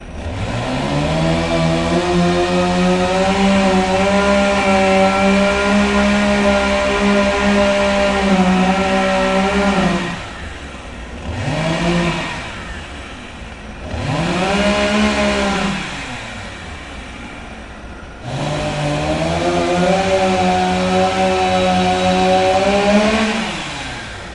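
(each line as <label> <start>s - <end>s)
A chainsaw motor roars constantly. 0.0s - 10.2s
A chainsaw engine idling. 10.3s - 11.2s
A chainsaw motor briefly ramps up and down. 11.2s - 12.6s
A chainsaw engine idling. 12.7s - 13.8s
A chainsaw motor briefly ramps up and down. 13.8s - 17.1s
A chainsaw engine idling. 17.2s - 18.1s
A chainsaw motor roars briefly, slowly increasing and then quickly decreasing in intensity. 18.1s - 24.3s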